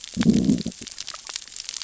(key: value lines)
label: biophony, growl
recorder: SoundTrap 600 or HydroMoth